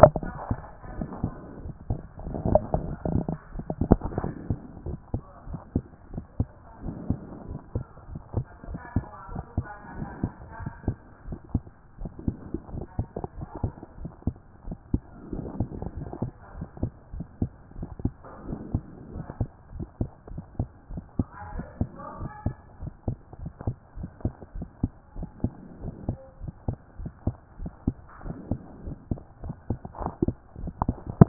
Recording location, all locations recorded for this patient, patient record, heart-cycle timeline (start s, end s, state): pulmonary valve (PV)
aortic valve (AV)+pulmonary valve (PV)+tricuspid valve (TV)+mitral valve (MV)+mitral valve (MV)
#Age: Adolescent
#Sex: Male
#Height: 150.0 cm
#Weight: 41.1 kg
#Pregnancy status: False
#Murmur: Absent
#Murmur locations: nan
#Most audible location: nan
#Systolic murmur timing: nan
#Systolic murmur shape: nan
#Systolic murmur grading: nan
#Systolic murmur pitch: nan
#Systolic murmur quality: nan
#Diastolic murmur timing: nan
#Diastolic murmur shape: nan
#Diastolic murmur grading: nan
#Diastolic murmur pitch: nan
#Diastolic murmur quality: nan
#Outcome: Normal
#Campaign: 2014 screening campaign
0.00	4.86	unannotated
4.86	4.98	S1
4.98	5.12	systole
5.12	5.22	S2
5.22	5.48	diastole
5.48	5.60	S1
5.60	5.74	systole
5.74	5.84	S2
5.84	6.12	diastole
6.12	6.24	S1
6.24	6.38	systole
6.38	6.48	S2
6.48	6.84	diastole
6.84	6.96	S1
6.96	7.08	systole
7.08	7.18	S2
7.18	7.48	diastole
7.48	7.60	S1
7.60	7.74	systole
7.74	7.84	S2
7.84	8.10	diastole
8.10	8.20	S1
8.20	8.36	systole
8.36	8.44	S2
8.44	8.68	diastole
8.68	8.80	S1
8.80	8.94	systole
8.94	9.06	S2
9.06	9.32	diastole
9.32	9.44	S1
9.44	9.56	systole
9.56	9.66	S2
9.66	9.96	diastole
9.96	10.08	S1
10.08	10.22	systole
10.22	10.32	S2
10.32	10.60	diastole
10.60	10.72	S1
10.72	10.86	systole
10.86	10.96	S2
10.96	11.26	diastole
11.26	11.38	S1
11.38	11.52	systole
11.52	11.62	S2
11.62	12.00	diastole
12.00	12.12	S1
12.12	12.26	systole
12.26	12.36	S2
12.36	12.72	diastole
12.72	12.84	S1
12.84	12.98	systole
12.98	13.08	S2
13.08	13.38	diastole
13.38	13.48	S1
13.48	13.62	systole
13.62	13.72	S2
13.72	14.00	diastole
14.00	14.10	S1
14.10	14.26	systole
14.26	14.36	S2
14.36	14.66	diastole
14.66	14.78	S1
14.78	14.92	systole
14.92	15.02	S2
15.02	15.32	diastole
15.32	15.44	S1
15.44	15.58	systole
15.58	15.68	S2
15.68	15.96	diastole
15.96	16.08	S1
16.08	16.22	systole
16.22	16.32	S2
16.32	16.56	diastole
16.56	16.68	S1
16.68	16.82	systole
16.82	16.92	S2
16.92	17.14	diastole
17.14	17.26	S1
17.26	17.40	systole
17.40	17.50	S2
17.50	17.78	diastole
17.78	17.90	S1
17.90	18.04	systole
18.04	18.12	S2
18.12	18.46	diastole
18.46	18.60	S1
18.60	18.72	systole
18.72	18.82	S2
18.82	19.14	diastole
19.14	19.26	S1
19.26	19.40	systole
19.40	19.48	S2
19.48	19.74	diastole
19.74	19.86	S1
19.86	20.00	systole
20.00	20.10	S2
20.10	20.32	diastole
20.32	20.44	S1
20.44	20.58	systole
20.58	20.68	S2
20.68	20.92	diastole
20.92	21.02	S1
21.02	21.18	systole
21.18	21.26	S2
21.26	21.54	diastole
21.54	21.66	S1
21.66	21.80	systole
21.80	21.90	S2
21.90	22.20	diastole
22.20	22.30	S1
22.30	22.44	systole
22.44	22.54	S2
22.54	22.82	diastole
22.82	22.92	S1
22.92	23.06	systole
23.06	23.18	S2
23.18	23.42	diastole
23.42	23.52	S1
23.52	23.66	systole
23.66	23.76	S2
23.76	23.98	diastole
23.98	24.10	S1
24.10	24.24	systole
24.24	24.34	S2
24.34	24.56	diastole
24.56	24.68	S1
24.68	24.82	systole
24.82	24.92	S2
24.92	25.16	diastole
25.16	25.28	S1
25.28	25.42	systole
25.42	25.52	S2
25.52	25.82	diastole
25.82	25.94	S1
25.94	26.08	systole
26.08	26.18	S2
26.18	26.42	diastole
26.42	26.52	S1
26.52	26.66	systole
26.66	26.76	S2
26.76	27.00	diastole
27.00	27.12	S1
27.12	27.26	systole
27.26	27.36	S2
27.36	27.60	diastole
27.60	27.72	S1
27.72	27.86	systole
27.86	27.96	S2
27.96	28.26	diastole
28.26	28.36	S1
28.36	28.50	systole
28.50	28.60	S2
28.60	28.84	diastole
28.84	28.96	S1
28.96	29.10	systole
29.10	29.20	S2
29.20	29.44	diastole
29.44	31.28	unannotated